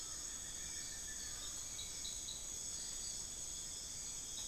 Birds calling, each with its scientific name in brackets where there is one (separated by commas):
Hauxwell's Thrush (Turdus hauxwelli), Amazonian Barred-Woodcreeper (Dendrocolaptes certhia), Buckley's Forest-Falcon (Micrastur buckleyi)